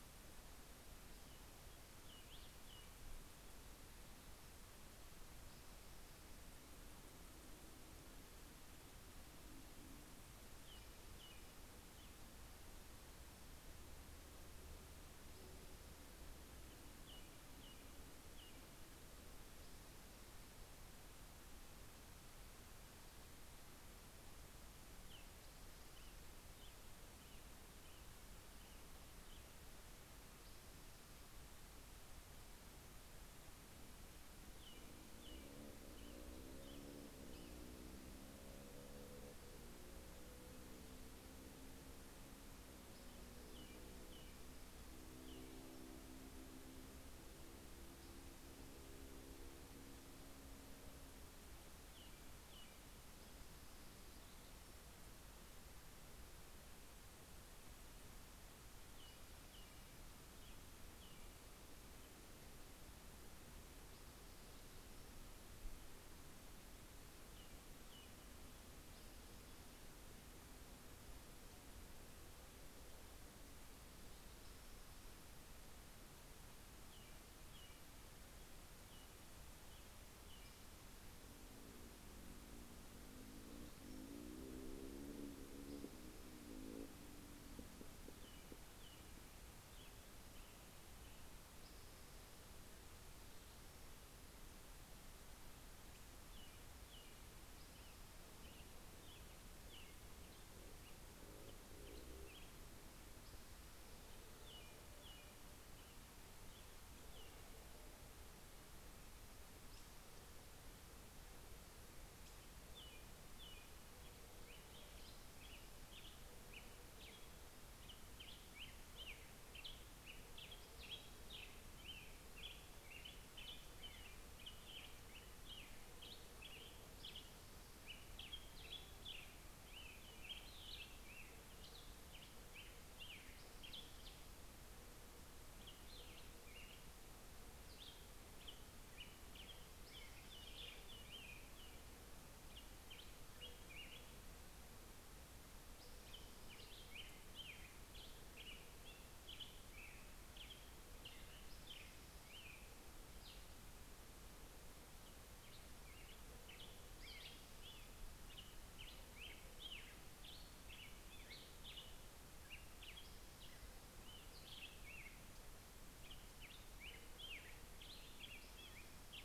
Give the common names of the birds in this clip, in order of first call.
American Robin, Spotted Towhee, Black-headed Grosbeak